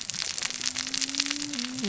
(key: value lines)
label: biophony, cascading saw
recorder: SoundTrap 600 or HydroMoth